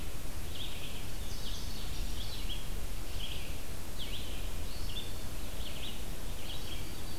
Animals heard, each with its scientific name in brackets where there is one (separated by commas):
Indigo Bunting (Passerina cyanea), Red-eyed Vireo (Vireo olivaceus), Black-throated Green Warbler (Setophaga virens)